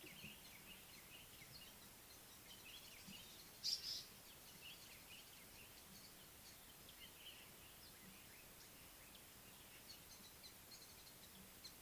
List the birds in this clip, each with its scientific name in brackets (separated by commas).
African Paradise-Flycatcher (Terpsiphone viridis), Pale White-eye (Zosterops flavilateralis)